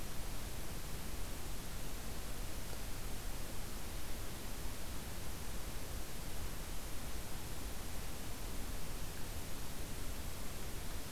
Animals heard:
forest ambience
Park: Acadia National Park